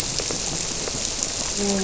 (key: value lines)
label: biophony, grouper
recorder: SoundTrap 300